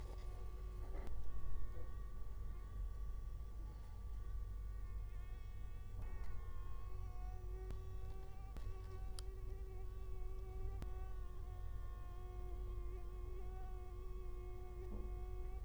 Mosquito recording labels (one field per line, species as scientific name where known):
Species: Culex quinquefasciatus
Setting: cup